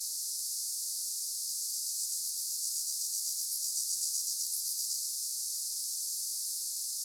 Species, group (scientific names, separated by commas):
Stenobothrus fischeri, Orthoptera